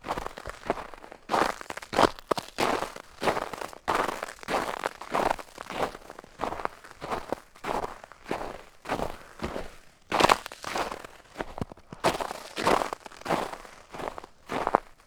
Is someone walking?
yes